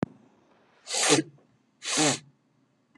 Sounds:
Sniff